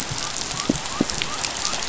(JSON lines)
{"label": "biophony", "recorder": "SoundTrap 500"}